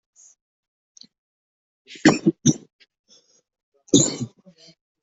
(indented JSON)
{
  "expert_labels": [
    {
      "quality": "poor",
      "cough_type": "unknown",
      "dyspnea": false,
      "wheezing": false,
      "stridor": false,
      "choking": false,
      "congestion": false,
      "nothing": true,
      "diagnosis": "lower respiratory tract infection",
      "severity": "mild"
    }
  ],
  "age": 25,
  "gender": "male",
  "respiratory_condition": true,
  "fever_muscle_pain": false,
  "status": "COVID-19"
}